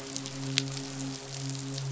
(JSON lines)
{"label": "biophony, midshipman", "recorder": "SoundTrap 500"}